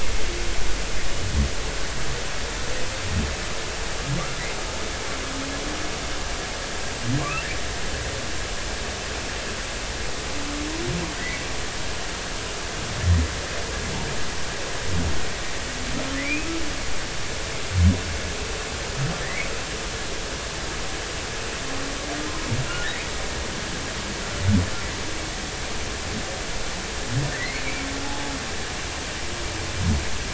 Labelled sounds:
7.2	7.4	humpback whale, 1.0 to 1.4 kHz
11.2	11.5	humpback whale, 1.9 to 2.3 kHz
16.2	16.5	humpback whale, 2.2 to 2.6 kHz
19.2	19.5	humpback whale, 1.7 to 2.4 kHz
27.3	28.3	humpback whale, 0.80 to 2.5 kHz

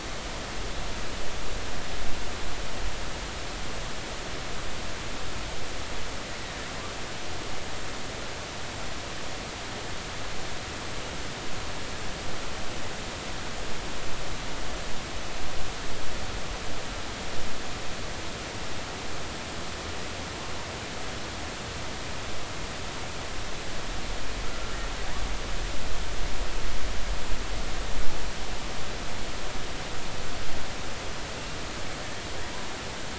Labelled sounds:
24.5	24.8	killer whale, offshore, 1.3 to 1.4 kHz

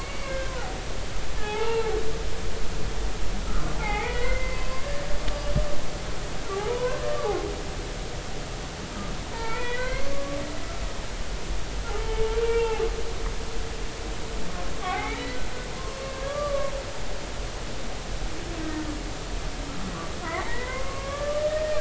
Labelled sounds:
0.0	0.8	humpback whale, 0.80 to 2.3 kHz
1.4	2.0	humpback whale, 0.80 to 1.4 kHz
3.7	4.9	humpback whale, 0.80 to 2.7 kHz
6.5	7.0	humpback whale, 0.80 to 1.1 kHz
9.3	10.4	humpback whale, 0.83 to 4.6 kHz
11.9	12.8	humpback whale, 0.80 to 2.8 kHz
14.8	15.4	humpback whale, 0.80 to 4.1 kHz
16.3	16.7	humpback whale, 1.1 to 1.2 kHz
20.2	21.8	humpback whale, 0.99 to 2.3 kHz

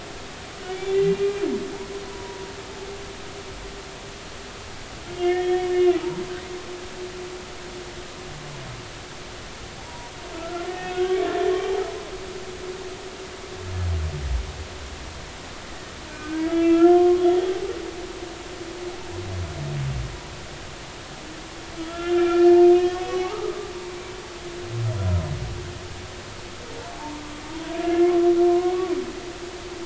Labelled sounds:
0.7	1.3	humpback whale, 2.2 to 3.6 kHz
2.1	2.5	humpback whale, 0.93 to 1.0 kHz
5.1	5.7	humpback whale, 1.7 to 3.4 kHz
9.8	11.2	humpback whale, 0.80 to 3.4 kHz
16.1	17.3	humpback whale, 1.0 to 2.8 kHz
21.8	23.7	humpback whale, 1.0 to 5.2 kHz
26.9	28.1	humpback whale, 0.80 to 1.8 kHz
28.4	28.7	humpback whale, 0.99 to 1.1 kHz

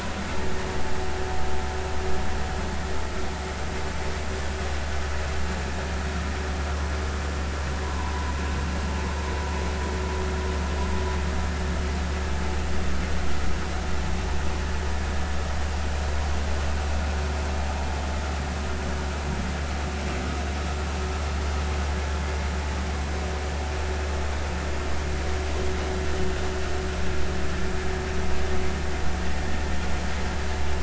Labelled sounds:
7.8	8.4	vessel noise, 0.90 to 1.1 kHz

